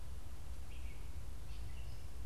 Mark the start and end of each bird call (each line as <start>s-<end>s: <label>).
0.0s-2.3s: Gray Catbird (Dumetella carolinensis)